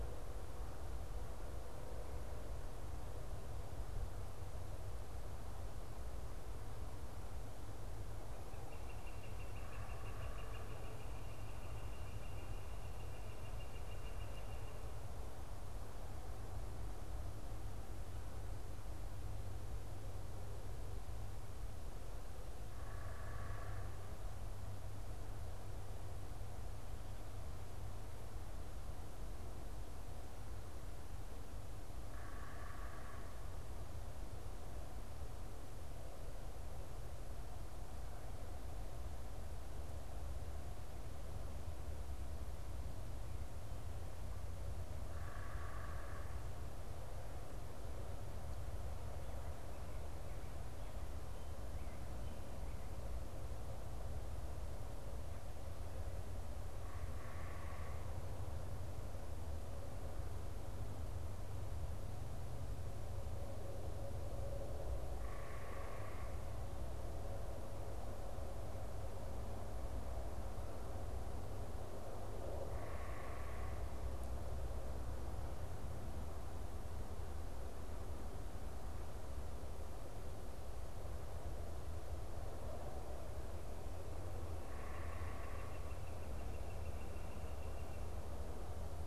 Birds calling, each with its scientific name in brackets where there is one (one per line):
Northern Flicker (Colaptes auratus)
unidentified bird